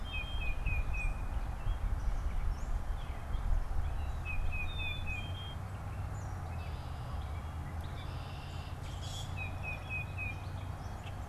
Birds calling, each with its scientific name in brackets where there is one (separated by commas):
Gray Catbird (Dumetella carolinensis), Red-winged Blackbird (Agelaius phoeniceus), Black-capped Chickadee (Poecile atricapillus), Common Grackle (Quiscalus quiscula), Tufted Titmouse (Baeolophus bicolor)